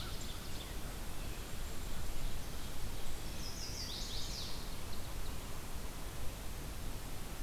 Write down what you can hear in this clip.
Ovenbird, Chestnut-sided Warbler